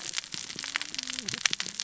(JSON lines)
{"label": "biophony, cascading saw", "recorder": "SoundTrap 600 or HydroMoth"}